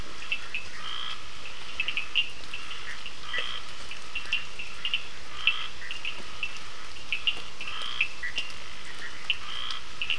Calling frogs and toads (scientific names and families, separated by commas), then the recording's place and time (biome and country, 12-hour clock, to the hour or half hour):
Sphaenorhynchus surdus (Hylidae), Scinax perereca (Hylidae), Boana bischoffi (Hylidae)
Atlantic Forest, Brazil, 7:30pm